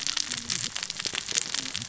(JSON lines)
{"label": "biophony, cascading saw", "recorder": "SoundTrap 600 or HydroMoth"}